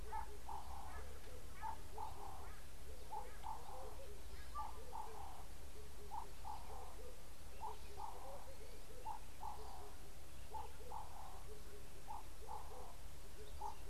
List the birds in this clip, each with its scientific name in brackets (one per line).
Ring-necked Dove (Streptopelia capicola)